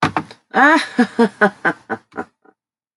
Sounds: Laughter